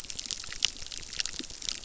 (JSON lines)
{"label": "biophony, crackle", "recorder": "SoundTrap 600"}